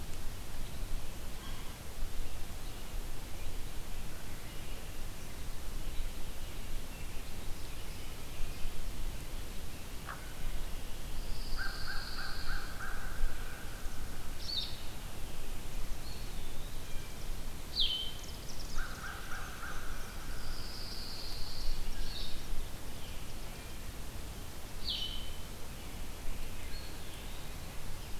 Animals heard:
Blue Jay (Cyanocitta cristata), American Robin (Turdus migratorius), Eastern Wood-Pewee (Contopus virens), Hooded Merganser (Lophodytes cucullatus), Blue-headed Vireo (Vireo solitarius), American Crow (Corvus brachyrhynchos), Pine Warbler (Setophaga pinus), Chimney Swift (Chaetura pelagica)

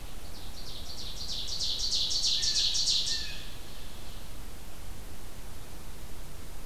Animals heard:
Ovenbird (Seiurus aurocapilla), Blue Jay (Cyanocitta cristata)

